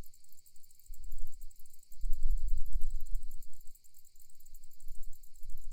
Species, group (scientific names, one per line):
Decticus albifrons
Orthoptera